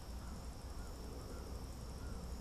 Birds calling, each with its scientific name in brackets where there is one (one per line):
American Crow (Corvus brachyrhynchos)